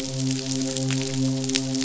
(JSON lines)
{"label": "biophony, midshipman", "recorder": "SoundTrap 500"}